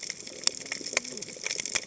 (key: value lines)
label: biophony, cascading saw
recorder: HydroMoth